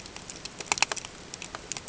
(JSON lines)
{"label": "ambient", "recorder": "HydroMoth"}